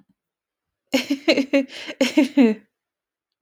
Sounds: Laughter